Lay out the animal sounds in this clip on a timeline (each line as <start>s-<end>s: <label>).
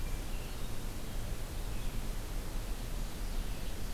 0.0s-3.9s: Red-eyed Vireo (Vireo olivaceus)
2.4s-3.9s: Ovenbird (Seiurus aurocapilla)